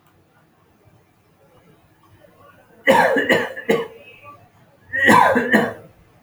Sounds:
Cough